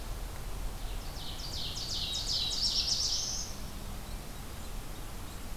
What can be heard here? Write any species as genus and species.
Seiurus aurocapilla, Setophaga caerulescens